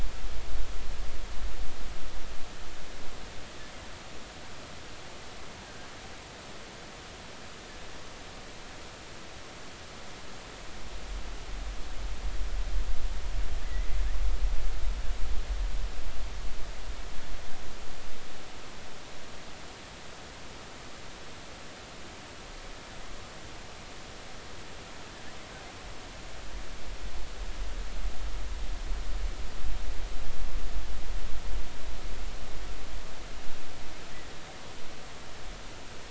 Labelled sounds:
5.6	5.9	killer whale, offshore, 1.5 to 1.7 kHz
13.6	13.9	killer whale, offshore, 1.9 to 2.1 kHz
34.1	34.4	killer whale, offshore, 1.7 to 2.0 kHz

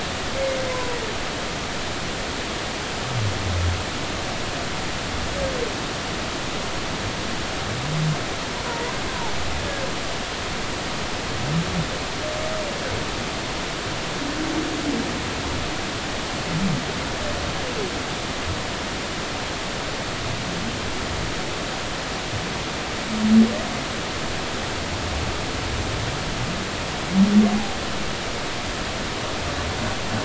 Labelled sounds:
0.7	1.0	humpback whale, 0.93 to 1.1 kHz
8.6	8.9	humpback whale, 0.86 to 1.1 kHz

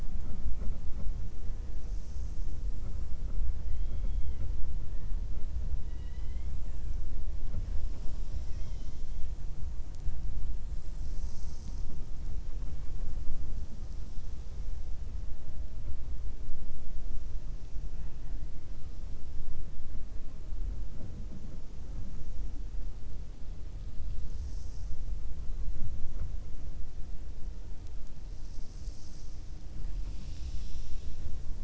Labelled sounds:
3.6	4.5	killer whale, 0.40 to 4.2 kHz
5.8	6.5	killer whale, 1.2 to 4.0 kHz
8.0	9.2	killer whale, 1.9 to 6.4 kHz

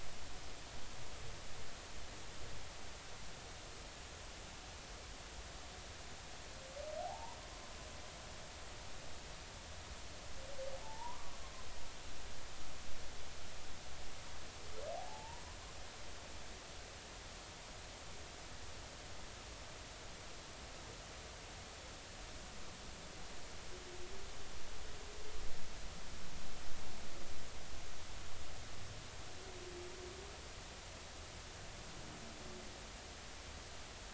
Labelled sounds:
7.0	7.4	humpback whale, 0.80 to 1.1 kHz
10.8	11.3	humpback whale, 0.80 to 1.2 kHz
14.9	15.4	humpback whale, 0.80 to 0.99 kHz

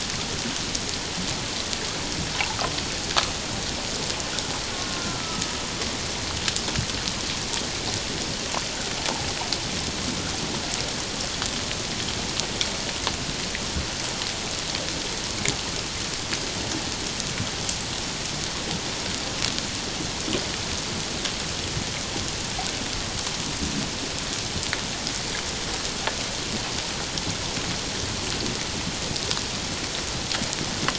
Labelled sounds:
4.8	5.6	killer whale, Bigg's (transient), 1.2 to 1.5 kHz

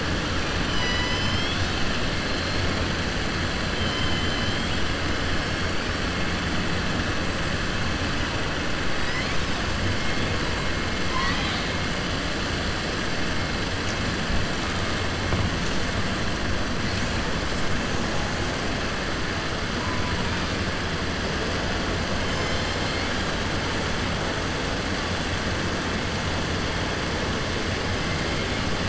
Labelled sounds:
11.0	11.7	killer whale, southern resident, 0.97 to 5.5 kHz

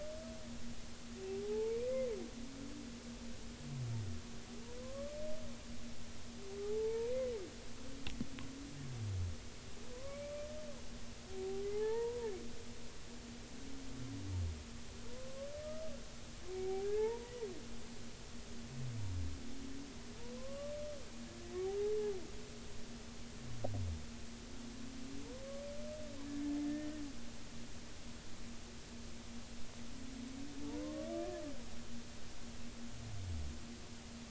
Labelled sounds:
1.4	1.8	humpback whale, 0.80 to 0.93 kHz
4.8	5.2	humpback whale, 0.99 to 1.2 kHz
6.6	7.1	humpback whale, 0.80 to 0.99 kHz
9.9	10.3	humpback whale, 0.96 to 2.4 kHz
11.3	12.3	humpback whale, 0.80 to 2.0 kHz
15.1	15.5	humpback whale, 0.93 to 1.2 kHz
16.5	17.3	humpback whale, 0.80 to 1.9 kHz
20.4	20.7	humpback whale, 0.96 to 1.2 kHz
26.7	27.0	humpback whale, 1.7 to 1.9 kHz
30.8	31.1	humpback whale, 0.99 to 1.2 kHz

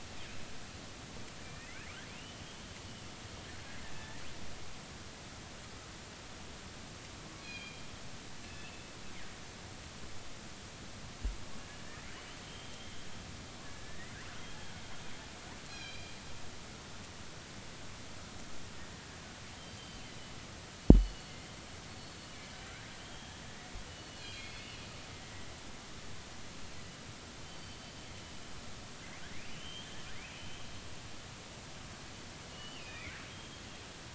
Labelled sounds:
1.4	1.9	killer whale, northern resident, R clan, call N32i, 1.7 to 2.7 kHz
2.2	2.4	killer whale, northern resident, R clan, call N32i, 2.7 to 3.1 kHz
3.9	4.2	killer whale, northern resident, R clan, call N33, 1.7 to 2.0 kHz
7.4	7.8	killer whale, northern resident, G clan, call N24ii, 2.3 to 5.0 kHz
8.4	8.8	killer whale, northern resident, G clan, call N24ii, 2.6 to 2.9 kHz
11.8	12.9	killer whale, northern resident, R clan, call N32ii, 1.7 to 3.3 kHz
13.6	14.1	killer whale, northern resident, R clan, call N32ii, 1.6 to 2.1 kHz
15.7	16.1	killer whale, northern resident, G clan, call N24ii, 2.3 to 5.0 kHz
19.7	20.0	killer whale, northern resident, G clan, GG subclan, call N23ii, 3.0 to 4.8 kHz
20.9	21.3	killer whale, northern resident, G clan, GG subclan, call N23ii, 2.9 to 4.5 kHz
23.0	23.4	killer whale, northern resident, R clan, call N32i, 3.0 to 3.3 kHz
24.1	24.6	killer whale, northern resident, G clan, 2.4 to 7.4 kHz
27.4	27.8	killer whale, northern resident, G clan, 3.0 to 4.6 kHz
29.5	30.0	killer whale, northern resident, R clan, call N32i, 2.7 to 3.4 kHz
32.5	33.2	killer whale, northern resident, G clan, GG subclan, 1.7 to 3.1 kHz
33.3	33.6	killer whale, northern resident, R clan, call N32ii, 3.2 to 3.3 kHz

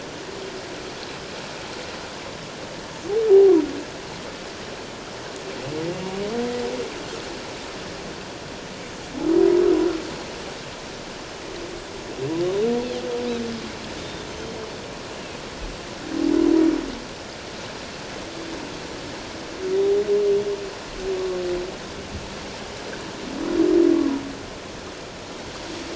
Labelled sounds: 3.3	3.5	humpback whale, 0.78 to 0.88 kHz
14.0	14.3	Pacific white-sided dolphin, 3.4 to 3.7 kHz

